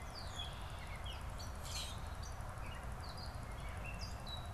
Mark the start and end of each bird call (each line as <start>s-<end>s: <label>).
0.0s-4.5s: Gray Catbird (Dumetella carolinensis)
1.4s-2.1s: Common Grackle (Quiscalus quiscula)